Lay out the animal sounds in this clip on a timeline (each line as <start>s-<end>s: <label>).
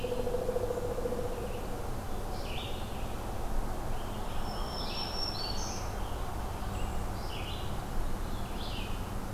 0.0s-9.3s: Red-eyed Vireo (Vireo olivaceus)
3.9s-6.5s: American Robin (Turdus migratorius)
4.1s-6.4s: Black-throated Green Warbler (Setophaga virens)